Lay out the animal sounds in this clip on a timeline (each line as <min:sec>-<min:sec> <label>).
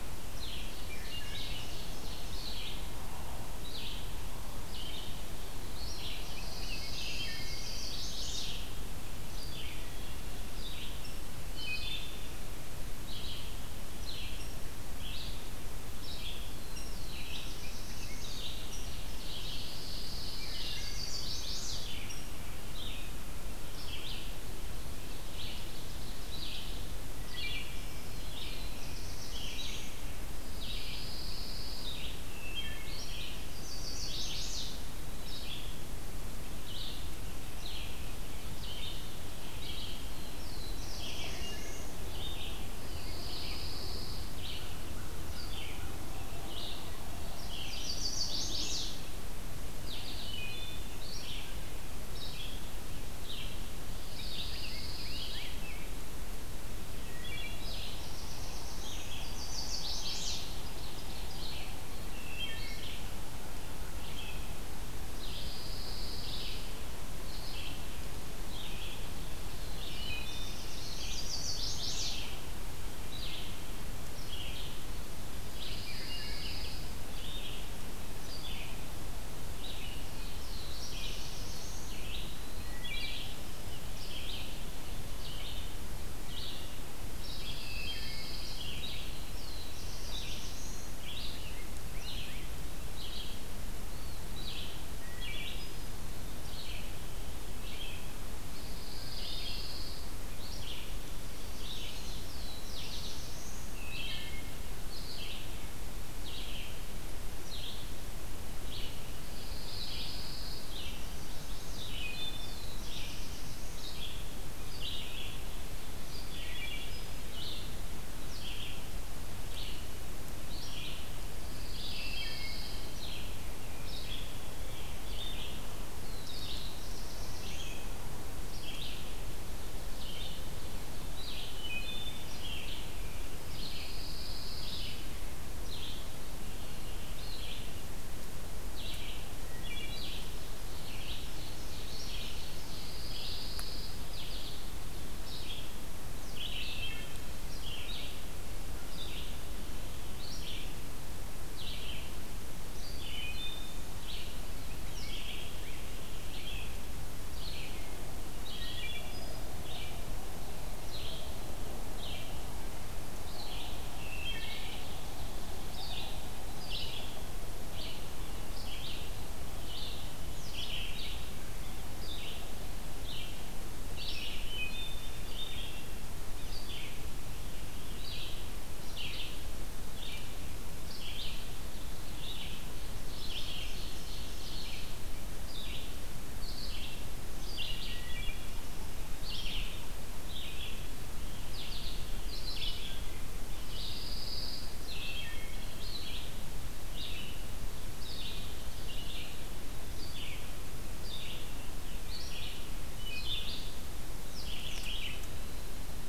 0:00.0-0:05.2 Red-eyed Vireo (Vireo olivaceus)
0:00.4-0:03.1 Ovenbird (Seiurus aurocapilla)
0:00.7-0:01.6 Wood Thrush (Hylocichla mustelina)
0:05.3-0:07.4 Black-throated Blue Warbler (Setophaga caerulescens)
0:05.7-1:04.5 Red-eyed Vireo (Vireo olivaceus)
0:06.0-0:07.4 Rose-breasted Grosbeak (Pheucticus ludovicianus)
0:07.1-0:07.7 Wood Thrush (Hylocichla mustelina)
0:07.3-0:08.8 Chestnut-sided Warbler (Setophaga pensylvanica)
0:10.9-0:11.3 Rose-breasted Grosbeak (Pheucticus ludovicianus)
0:11.4-0:12.2 Wood Thrush (Hylocichla mustelina)
0:14.2-0:14.7 Rose-breasted Grosbeak (Pheucticus ludovicianus)
0:16.6-0:18.4 Black-throated Blue Warbler (Setophaga caerulescens)
0:16.7-0:17.0 Rose-breasted Grosbeak (Pheucticus ludovicianus)
0:18.7-0:19.0 Rose-breasted Grosbeak (Pheucticus ludovicianus)
0:19.5-0:21.0 Pine Warbler (Setophaga pinus)
0:20.7-0:21.8 Chestnut-sided Warbler (Setophaga pensylvanica)
0:22.0-0:22.3 Rose-breasted Grosbeak (Pheucticus ludovicianus)
0:27.3-0:27.9 Wood Thrush (Hylocichla mustelina)
0:27.9-0:30.0 Black-throated Blue Warbler (Setophaga caerulescens)
0:30.4-0:31.9 Pine Warbler (Setophaga pinus)
0:32.3-0:32.9 Wood Thrush (Hylocichla mustelina)
0:33.3-0:34.9 Chestnut-sided Warbler (Setophaga pensylvanica)
0:39.9-0:42.0 Black-throated Blue Warbler (Setophaga caerulescens)
0:41.4-0:41.9 Wood Thrush (Hylocichla mustelina)
0:42.8-0:44.3 Pine Warbler (Setophaga pinus)
0:47.5-0:48.8 Chestnut-sided Warbler (Setophaga pensylvanica)
0:50.2-0:51.0 Wood Thrush (Hylocichla mustelina)
0:54.1-0:56.1 Rose-breasted Grosbeak (Pheucticus ludovicianus)
0:54.1-0:55.6 Pine Warbler (Setophaga pinus)
0:57.0-0:57.7 Wood Thrush (Hylocichla mustelina)
0:57.2-0:59.3 Black-throated Blue Warbler (Setophaga caerulescens)
0:59.1-1:00.6 Chestnut-sided Warbler (Setophaga pensylvanica)
1:00.5-1:01.7 Ovenbird (Seiurus aurocapilla)
1:02.1-1:02.8 Wood Thrush (Hylocichla mustelina)
1:05.0-1:06.6 Pine Warbler (Setophaga pinus)
1:05.0-2:03.4 Red-eyed Vireo (Vireo olivaceus)
1:09.4-1:11.6 Black-throated Blue Warbler (Setophaga caerulescens)
1:09.8-1:10.6 Wood Thrush (Hylocichla mustelina)
1:11.0-1:12.3 Chestnut-sided Warbler (Setophaga pensylvanica)
1:15.5-1:16.9 Pine Warbler (Setophaga pinus)
1:15.9-1:16.6 Wood Thrush (Hylocichla mustelina)
1:19.8-1:22.1 Black-throated Blue Warbler (Setophaga caerulescens)
1:22.5-1:23.1 Wood Thrush (Hylocichla mustelina)
1:27.2-1:28.6 Pine Warbler (Setophaga pinus)
1:27.4-1:28.3 Wood Thrush (Hylocichla mustelina)
1:29.0-1:30.9 Black-throated Blue Warbler (Setophaga caerulescens)
1:30.0-1:31.0 Eastern Wood-Pewee (Contopus virens)
1:31.0-1:32.6 Rose-breasted Grosbeak (Pheucticus ludovicianus)
1:33.8-1:34.3 Eastern Wood-Pewee (Contopus virens)
1:34.8-1:35.8 Wood Thrush (Hylocichla mustelina)
1:38.5-1:40.1 Pine Warbler (Setophaga pinus)
1:41.4-1:42.4 Chestnut-sided Warbler (Setophaga pensylvanica)
1:42.1-1:43.7 Black-throated Blue Warbler (Setophaga caerulescens)
1:43.6-1:44.5 Wood Thrush (Hylocichla mustelina)
1:49.3-1:50.8 Pine Warbler (Setophaga pinus)
1:50.5-1:51.8 Chestnut-sided Warbler (Setophaga pensylvanica)
1:51.5-1:52.6 Wood Thrush (Hylocichla mustelina)
1:52.2-1:54.0 Black-throated Blue Warbler (Setophaga caerulescens)
1:56.3-1:57.0 Wood Thrush (Hylocichla mustelina)
2:01.4-2:02.8 Pine Warbler (Setophaga pinus)
2:01.8-2:02.7 Wood Thrush (Hylocichla mustelina)
2:03.8-3:01.6 Red-eyed Vireo (Vireo olivaceus)
2:05.8-2:07.9 Black-throated Blue Warbler (Setophaga caerulescens)
2:11.4-2:12.2 Wood Thrush (Hylocichla mustelina)
2:13.5-2:15.0 Pine Warbler (Setophaga pinus)
2:19.3-2:20.1 Wood Thrush (Hylocichla mustelina)
2:20.5-2:22.9 Ovenbird (Seiurus aurocapilla)
2:22.6-2:24.0 Pine Warbler (Setophaga pinus)
2:26.6-2:27.3 Wood Thrush (Hylocichla mustelina)
2:32.8-2:33.8 Wood Thrush (Hylocichla mustelina)
2:38.4-2:39.3 Wood Thrush (Hylocichla mustelina)
2:44.0-2:44.9 Wood Thrush (Hylocichla mustelina)
2:54.4-2:55.2 Wood Thrush (Hylocichla mustelina)
3:02.0-3:26.1 Red-eyed Vireo (Vireo olivaceus)
3:03.0-3:04.8 Ovenbird (Seiurus aurocapilla)
3:07.9-3:08.6 Wood Thrush (Hylocichla mustelina)
3:13.6-3:14.8 Pine Warbler (Setophaga pinus)
3:15.0-3:15.7 Wood Thrush (Hylocichla mustelina)
3:23.0-3:23.6 Wood Thrush (Hylocichla mustelina)